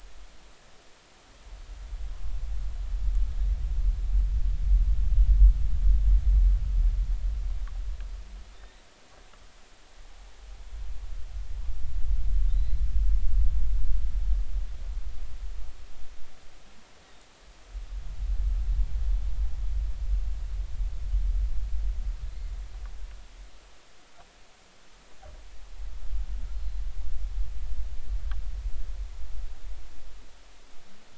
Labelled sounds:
8.5	8.8	humpback whale, 3.5 to 3.8 kHz
12.5	12.8	humpback whale, 3.9 to 4.2 kHz
26.5	26.8	humpback whale, 4.0 to 4.3 kHz

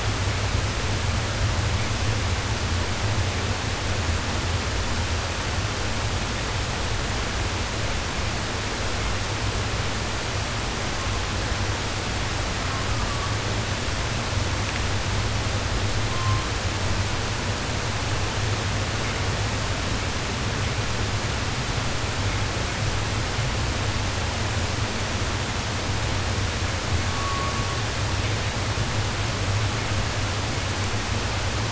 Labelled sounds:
10.8	11.5	killer whale, southern resident, 0.42 to 1.4 kHz
12.5	13.4	killer whale, southern resident, 0.59 to 1.5 kHz
16.0	16.6	killer whale, southern resident, 0.47 to 4.6 kHz
26.9	27.9	killer whale, southern resident, 0.47 to 1.7 kHz

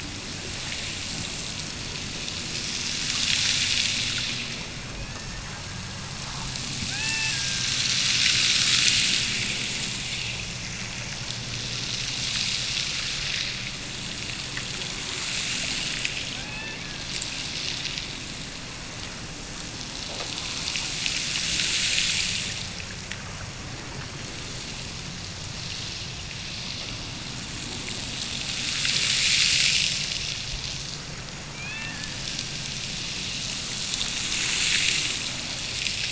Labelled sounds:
5.0	6.5	killer whale, Bigg's (transient), Gulf of Alaska transient, 1.4 to 2.9 kHz
6.8	7.9	killer whale, Bigg's (transient), Gulf of Alaska transient, 0.48 to 2.9 kHz
16.2	17.6	killer whale, Bigg's (transient), Gulf of Alaska transient, 0.57 to 5.3 kHz
31.5	32.9	killer whale, Bigg's (transient), Gulf of Alaska transient, 0.55 to 4.4 kHz

